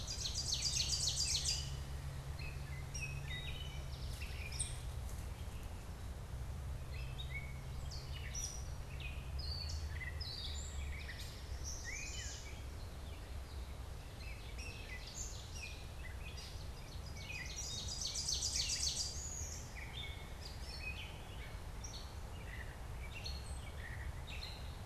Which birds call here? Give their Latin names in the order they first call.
Seiurus aurocapilla, Dumetella carolinensis, Pipilo erythrophthalmus, Setophaga pensylvanica